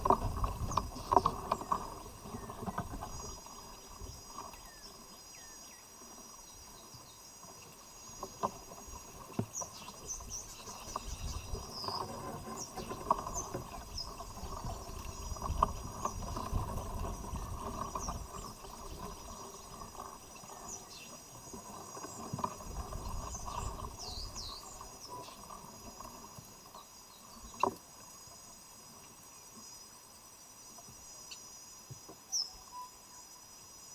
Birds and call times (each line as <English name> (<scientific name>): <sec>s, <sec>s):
White-bellied Tit (Melaniparus albiventris): 1.0s, 10.2s, 24.0s, 32.2s
African Emerald Cuckoo (Chrysococcyx cupreus): 5.3s
Tropical Boubou (Laniarius major): 32.7s